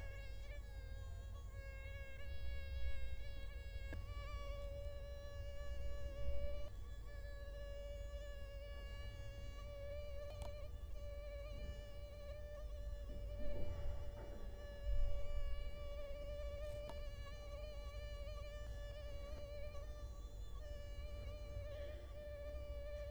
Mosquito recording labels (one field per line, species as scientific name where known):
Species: Culex quinquefasciatus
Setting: cup